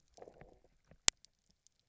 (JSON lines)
{"label": "biophony, low growl", "recorder": "SoundTrap 300"}